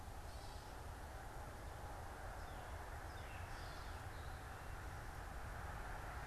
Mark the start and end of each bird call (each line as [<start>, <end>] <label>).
[0.00, 6.27] Gray Catbird (Dumetella carolinensis)